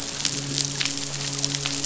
{"label": "biophony, midshipman", "recorder": "SoundTrap 500"}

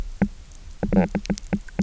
{"label": "biophony, knock croak", "recorder": "SoundTrap 300"}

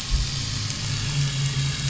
{"label": "anthrophony, boat engine", "recorder": "SoundTrap 500"}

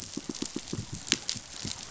{"label": "biophony, pulse", "recorder": "SoundTrap 500"}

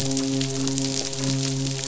{"label": "biophony, midshipman", "recorder": "SoundTrap 500"}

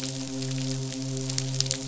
{"label": "biophony, midshipman", "recorder": "SoundTrap 500"}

